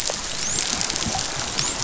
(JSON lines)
{"label": "biophony, dolphin", "recorder": "SoundTrap 500"}